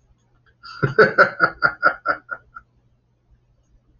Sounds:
Laughter